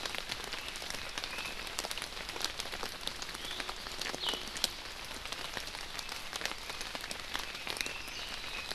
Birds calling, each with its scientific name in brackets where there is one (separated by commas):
Red-billed Leiothrix (Leiothrix lutea)